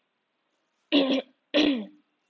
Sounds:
Throat clearing